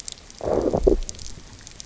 {"label": "biophony, low growl", "recorder": "SoundTrap 300"}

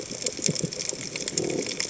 {"label": "biophony", "recorder": "HydroMoth"}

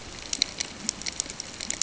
{"label": "ambient", "recorder": "HydroMoth"}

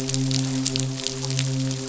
{"label": "biophony, midshipman", "recorder": "SoundTrap 500"}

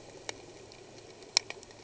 {"label": "anthrophony, boat engine", "recorder": "HydroMoth"}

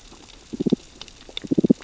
{"label": "biophony, damselfish", "recorder": "SoundTrap 600 or HydroMoth"}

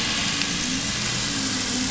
{"label": "anthrophony, boat engine", "recorder": "SoundTrap 500"}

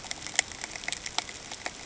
{"label": "ambient", "recorder": "HydroMoth"}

